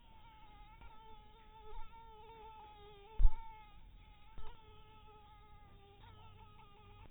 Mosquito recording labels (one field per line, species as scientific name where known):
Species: mosquito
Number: one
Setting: cup